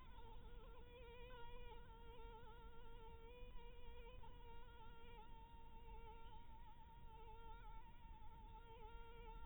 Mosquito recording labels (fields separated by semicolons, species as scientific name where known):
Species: Anopheles dirus; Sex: female; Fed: blood-fed; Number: one; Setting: cup